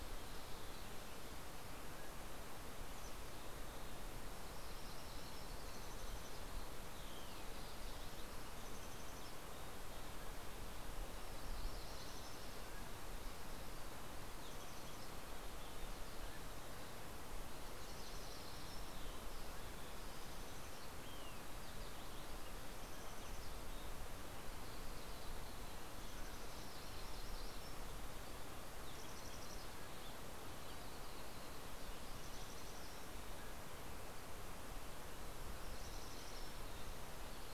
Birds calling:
Yellow-rumped Warbler (Setophaga coronata), Mountain Chickadee (Poecile gambeli), Mountain Quail (Oreortyx pictus), Olive-sided Flycatcher (Contopus cooperi)

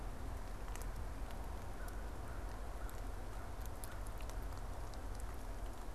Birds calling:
American Crow (Corvus brachyrhynchos)

